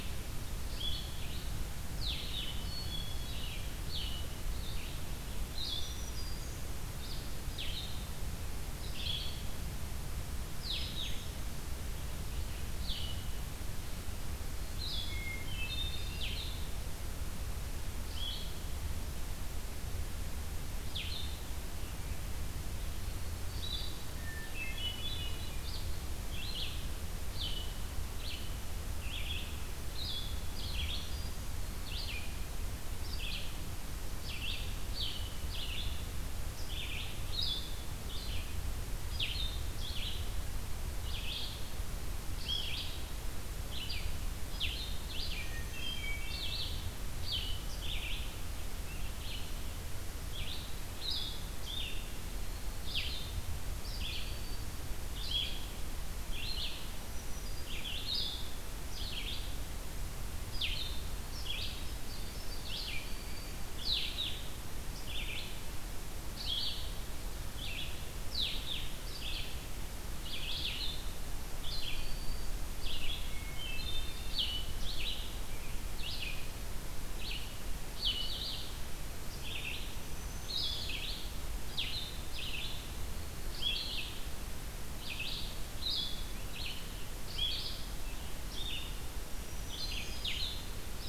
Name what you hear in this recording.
Red-eyed Vireo, Blue-headed Vireo, Hermit Thrush, Black-throated Green Warbler